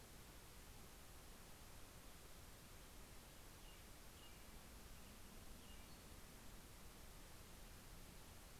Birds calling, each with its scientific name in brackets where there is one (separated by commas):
American Robin (Turdus migratorius), Pacific-slope Flycatcher (Empidonax difficilis)